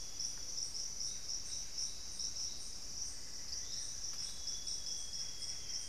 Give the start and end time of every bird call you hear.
[2.97, 4.47] Amazonian Barred-Woodcreeper (Dendrocolaptes certhia)
[3.17, 5.89] unidentified bird
[3.97, 5.89] Amazonian Grosbeak (Cyanoloxia rothschildii)
[4.97, 5.89] Elegant Woodcreeper (Xiphorhynchus elegans)

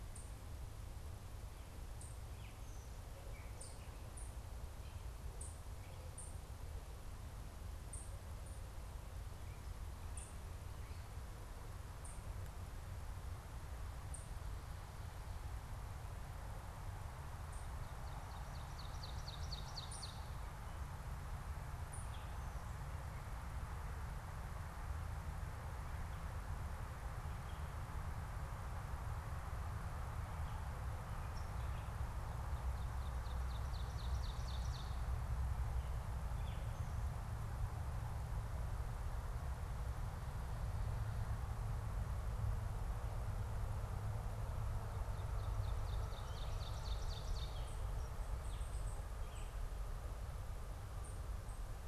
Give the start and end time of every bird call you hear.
[0.00, 14.50] unidentified bird
[2.10, 6.20] Gray Catbird (Dumetella carolinensis)
[17.40, 22.20] unidentified bird
[17.70, 20.50] Ovenbird (Seiurus aurocapilla)
[32.40, 35.10] Ovenbird (Seiurus aurocapilla)
[36.30, 36.80] Gray Catbird (Dumetella carolinensis)
[44.90, 47.90] Ovenbird (Seiurus aurocapilla)
[47.40, 51.80] unidentified bird
[47.90, 49.80] Gray Catbird (Dumetella carolinensis)

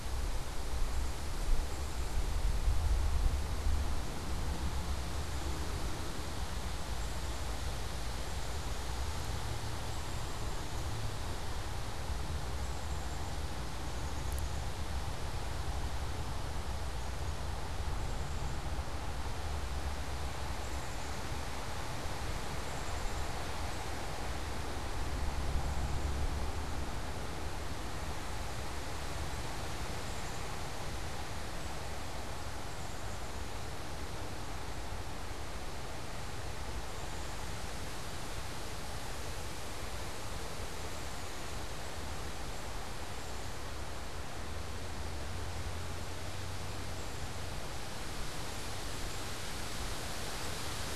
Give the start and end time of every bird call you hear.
[0.00, 10.47] Black-capped Chickadee (Poecile atricapillus)
[12.37, 49.67] Black-capped Chickadee (Poecile atricapillus)

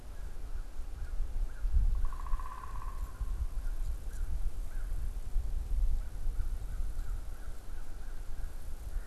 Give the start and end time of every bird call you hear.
[0.00, 9.06] American Crow (Corvus brachyrhynchos)
[1.90, 3.50] unidentified bird

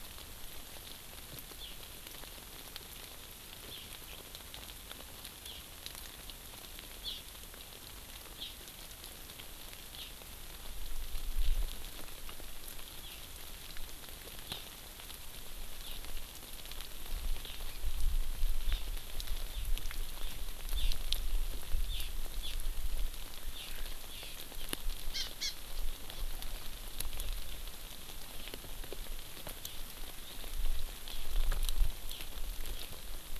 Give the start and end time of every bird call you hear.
[1.59, 1.69] Hawaii Amakihi (Chlorodrepanis virens)
[3.69, 3.79] Hawaii Amakihi (Chlorodrepanis virens)
[5.49, 5.59] Hawaii Amakihi (Chlorodrepanis virens)
[6.99, 7.29] Hawaii Amakihi (Chlorodrepanis virens)
[8.39, 8.49] Hawaii Amakihi (Chlorodrepanis virens)
[9.89, 10.09] Hawaii Amakihi (Chlorodrepanis virens)
[14.49, 14.59] Hawaii Amakihi (Chlorodrepanis virens)
[15.79, 15.99] Hawaii Amakihi (Chlorodrepanis virens)
[18.69, 18.89] Hawaii Amakihi (Chlorodrepanis virens)
[20.79, 20.99] Hawaii Amakihi (Chlorodrepanis virens)
[21.89, 22.09] Hawaii Amakihi (Chlorodrepanis virens)
[22.39, 22.59] Hawaii Amakihi (Chlorodrepanis virens)
[23.49, 23.69] Hawaii Amakihi (Chlorodrepanis virens)
[24.09, 24.39] Hawaii Amakihi (Chlorodrepanis virens)
[25.09, 25.49] Hawaii Amakihi (Chlorodrepanis virens)

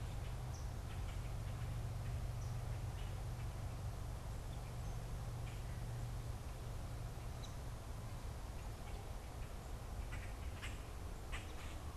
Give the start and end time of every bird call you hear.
[0.00, 2.59] unidentified bird
[0.00, 3.49] Common Grackle (Quiscalus quiscula)
[5.39, 5.69] Common Grackle (Quiscalus quiscula)
[7.29, 7.59] unidentified bird
[8.09, 11.96] Common Grackle (Quiscalus quiscula)

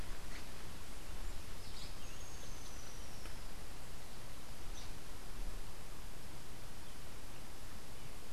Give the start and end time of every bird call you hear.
[2.02, 3.31] Rufous-tailed Hummingbird (Amazilia tzacatl)

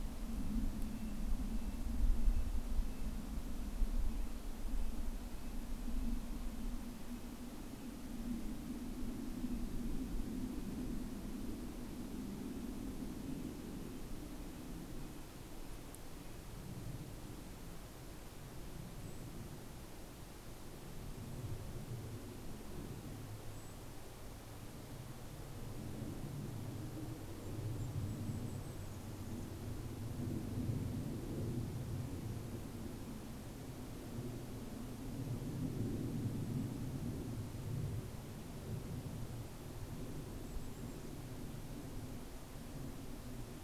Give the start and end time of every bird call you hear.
[0.00, 17.20] Red-breasted Nuthatch (Sitta canadensis)
[18.60, 19.50] Golden-crowned Kinglet (Regulus satrapa)
[22.90, 24.20] Golden-crowned Kinglet (Regulus satrapa)
[27.30, 29.70] Golden-crowned Kinglet (Regulus satrapa)
[40.00, 41.90] Golden-crowned Kinglet (Regulus satrapa)

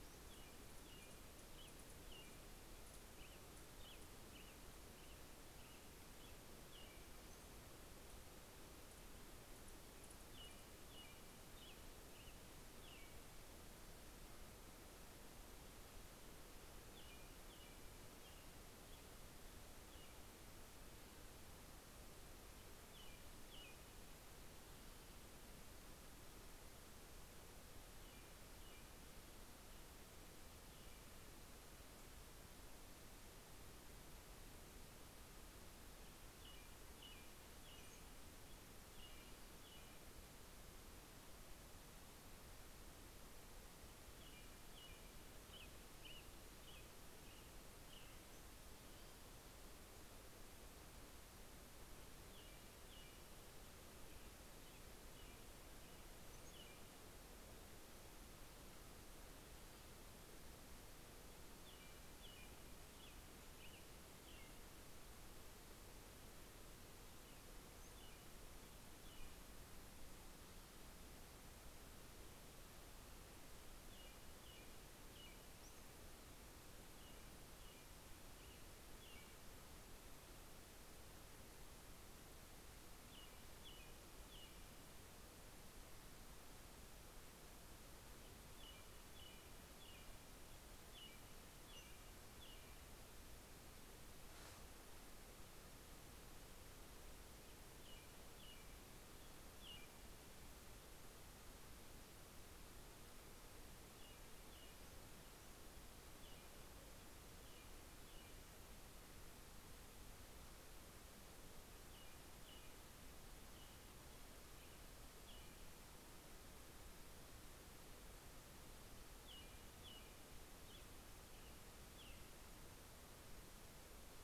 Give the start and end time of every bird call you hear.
[0.00, 7.60] American Robin (Turdus migratorius)
[9.60, 14.00] American Robin (Turdus migratorius)
[16.20, 24.80] American Robin (Turdus migratorius)
[27.60, 31.10] American Robin (Turdus migratorius)
[35.40, 41.10] American Robin (Turdus migratorius)
[37.30, 38.40] Brown-headed Cowbird (Molothrus ater)
[43.30, 49.50] American Robin (Turdus migratorius)
[51.40, 56.90] American Robin (Turdus migratorius)
[55.80, 57.60] Brown-headed Cowbird (Molothrus ater)
[60.70, 69.80] American Robin (Turdus migratorius)
[73.40, 85.40] American Robin (Turdus migratorius)
[75.20, 76.20] Brown-headed Cowbird (Molothrus ater)
[87.90, 93.00] American Robin (Turdus migratorius)
[96.80, 100.60] American Robin (Turdus migratorius)
[103.50, 108.40] American Robin (Turdus migratorius)
[111.30, 116.20] American Robin (Turdus migratorius)
[118.10, 123.20] American Robin (Turdus migratorius)

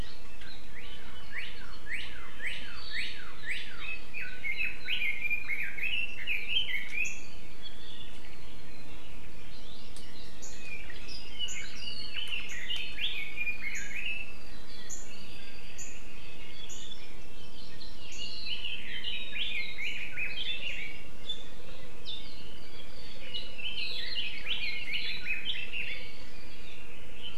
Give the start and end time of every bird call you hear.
[0.70, 3.90] Northern Cardinal (Cardinalis cardinalis)
[3.80, 7.30] Red-billed Leiothrix (Leiothrix lutea)
[9.30, 10.80] Hawaii Amakihi (Chlorodrepanis virens)
[10.80, 14.40] Red-billed Leiothrix (Leiothrix lutea)
[17.10, 18.80] Hawaii Amakihi (Chlorodrepanis virens)
[18.50, 21.10] Red-billed Leiothrix (Leiothrix lutea)
[23.30, 26.30] Red-billed Leiothrix (Leiothrix lutea)

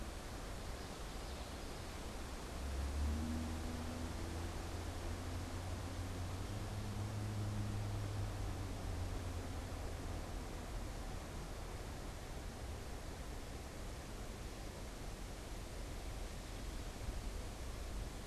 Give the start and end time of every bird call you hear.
[0.35, 2.25] Common Yellowthroat (Geothlypis trichas)

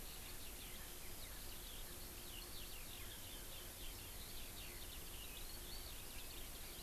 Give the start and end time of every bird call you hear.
[0.00, 6.82] Eurasian Skylark (Alauda arvensis)

